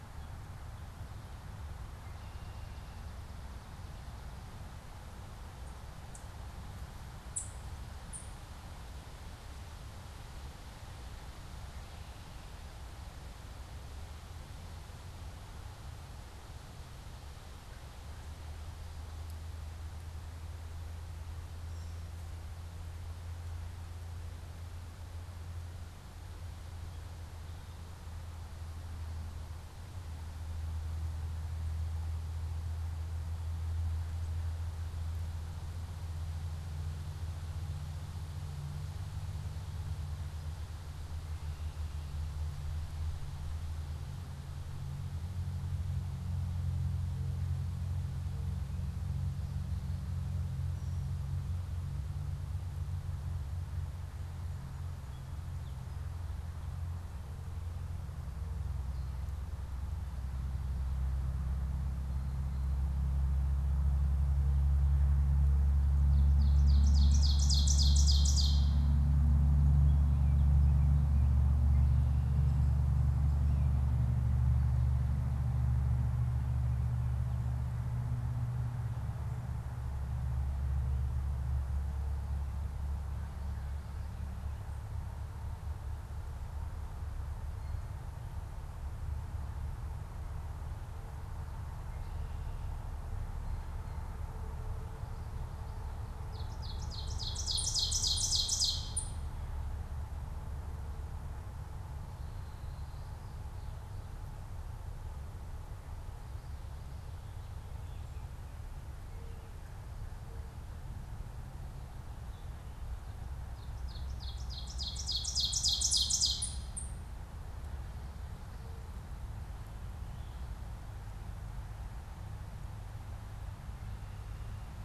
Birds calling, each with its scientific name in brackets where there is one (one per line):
Ovenbird (Seiurus aurocapilla)